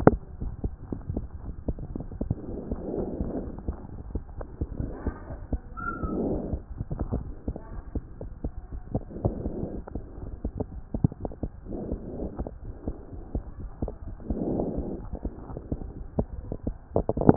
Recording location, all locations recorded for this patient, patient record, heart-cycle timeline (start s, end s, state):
aortic valve (AV)
aortic valve (AV)+pulmonary valve (PV)+tricuspid valve (TV)+mitral valve (MV)
#Age: Child
#Sex: Male
#Height: 130.0 cm
#Weight: 26.7 kg
#Pregnancy status: False
#Murmur: Absent
#Murmur locations: nan
#Most audible location: nan
#Systolic murmur timing: nan
#Systolic murmur shape: nan
#Systolic murmur grading: nan
#Systolic murmur pitch: nan
#Systolic murmur quality: nan
#Diastolic murmur timing: nan
#Diastolic murmur shape: nan
#Diastolic murmur grading: nan
#Diastolic murmur pitch: nan
#Diastolic murmur quality: nan
#Outcome: Normal
#Campaign: 2014 screening campaign
0.00	6.98	unannotated
6.98	6.99	diastole
6.99	7.24	S1
7.24	7.46	systole
7.46	7.56	S2
7.56	7.74	diastole
7.74	7.82	S1
7.82	7.94	systole
7.94	8.04	S2
8.04	8.22	diastole
8.22	8.30	S1
8.30	8.44	systole
8.44	8.52	S2
8.52	8.72	diastole
8.72	8.82	S1
8.82	8.94	systole
8.94	9.02	S2
9.02	9.24	diastole
9.24	9.34	S1
9.34	9.46	systole
9.46	9.54	S2
9.54	9.74	diastole
9.74	9.84	S1
9.84	9.96	systole
9.96	10.04	S2
10.04	10.24	diastole
10.24	10.32	S1
10.32	10.46	systole
10.46	10.62	S2
10.62	10.96	diastole
10.96	11.10	S1
11.10	11.24	systole
11.24	11.47	S2
11.47	11.55	diastole
11.55	17.36	unannotated